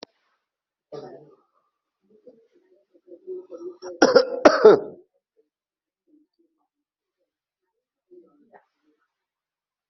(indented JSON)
{
  "expert_labels": [
    {
      "quality": "good",
      "cough_type": "dry",
      "dyspnea": false,
      "wheezing": false,
      "stridor": false,
      "choking": false,
      "congestion": false,
      "nothing": true,
      "diagnosis": "upper respiratory tract infection",
      "severity": "mild"
    }
  ],
  "age": 47,
  "gender": "male",
  "respiratory_condition": false,
  "fever_muscle_pain": false,
  "status": "COVID-19"
}